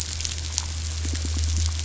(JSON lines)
{"label": "biophony", "recorder": "SoundTrap 500"}